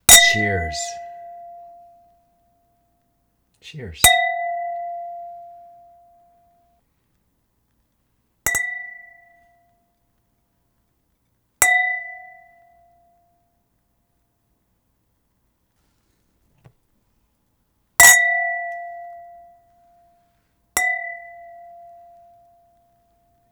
are two glasses being struck together?
yes